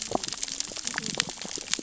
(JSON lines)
{"label": "biophony, cascading saw", "recorder": "SoundTrap 600 or HydroMoth"}